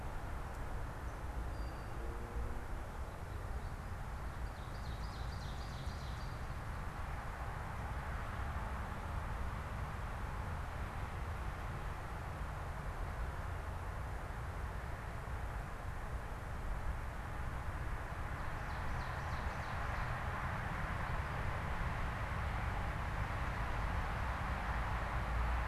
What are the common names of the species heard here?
unidentified bird, Ovenbird